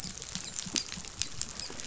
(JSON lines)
{"label": "biophony, dolphin", "recorder": "SoundTrap 500"}